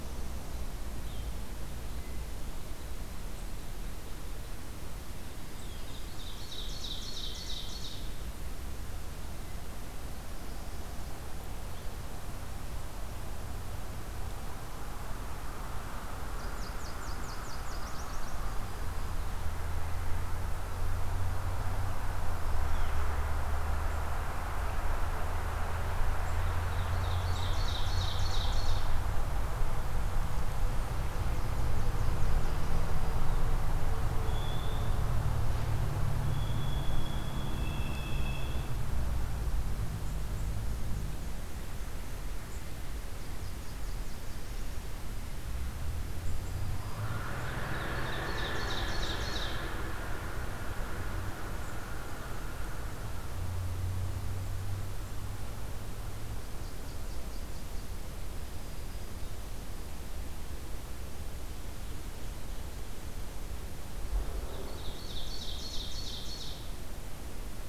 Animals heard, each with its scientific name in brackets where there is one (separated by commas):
unidentified call, Black-throated Green Warbler (Setophaga virens), Nashville Warbler (Leiothlypis ruficapilla), Ovenbird (Seiurus aurocapilla)